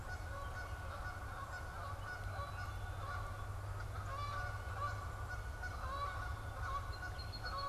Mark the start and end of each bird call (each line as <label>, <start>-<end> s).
Canada Goose (Branta canadensis), 0.1-7.7 s
Black-capped Chickadee (Poecile atricapillus), 2.3-3.2 s
Song Sparrow (Melospiza melodia), 6.6-7.7 s